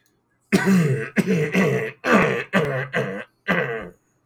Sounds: Throat clearing